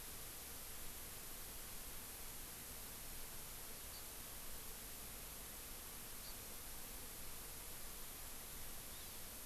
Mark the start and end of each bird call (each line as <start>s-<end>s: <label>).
3.9s-4.0s: Hawaii Amakihi (Chlorodrepanis virens)
6.2s-6.3s: Hawaii Amakihi (Chlorodrepanis virens)
8.9s-9.2s: Hawaii Amakihi (Chlorodrepanis virens)